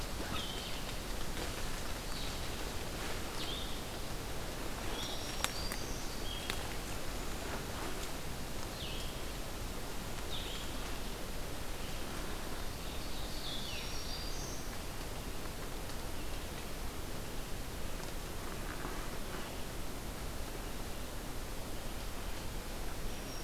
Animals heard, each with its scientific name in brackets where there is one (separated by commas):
Ovenbird (Seiurus aurocapilla), Black-throated Green Warbler (Setophaga virens), Red-eyed Vireo (Vireo olivaceus)